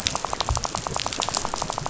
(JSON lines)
{"label": "biophony, rattle", "recorder": "SoundTrap 500"}